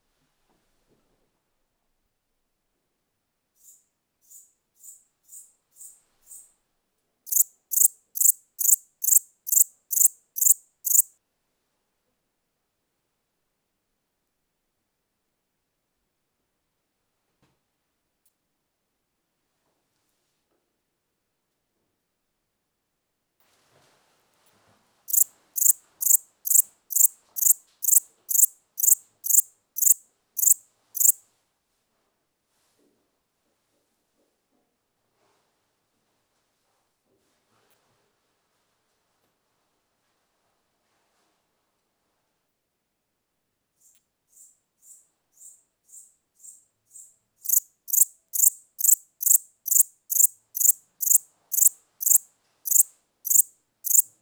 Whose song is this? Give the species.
Pholidoptera macedonica